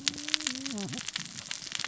{"label": "biophony, cascading saw", "recorder": "SoundTrap 600 or HydroMoth"}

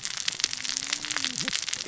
{"label": "biophony, cascading saw", "recorder": "SoundTrap 600 or HydroMoth"}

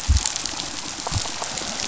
{"label": "biophony", "recorder": "SoundTrap 500"}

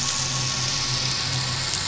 {"label": "anthrophony, boat engine", "recorder": "SoundTrap 500"}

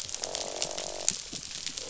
{"label": "biophony, croak", "recorder": "SoundTrap 500"}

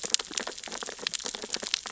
{"label": "biophony, sea urchins (Echinidae)", "recorder": "SoundTrap 600 or HydroMoth"}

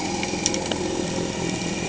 {"label": "anthrophony, boat engine", "recorder": "HydroMoth"}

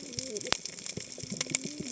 {"label": "biophony, cascading saw", "recorder": "HydroMoth"}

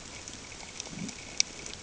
{"label": "ambient", "recorder": "HydroMoth"}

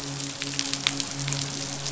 {"label": "biophony, midshipman", "recorder": "SoundTrap 500"}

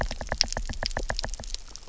{"label": "biophony, knock", "recorder": "SoundTrap 300"}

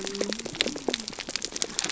{"label": "biophony", "recorder": "SoundTrap 300"}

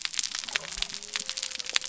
{"label": "biophony", "recorder": "SoundTrap 300"}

